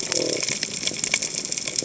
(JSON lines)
{"label": "biophony", "recorder": "HydroMoth"}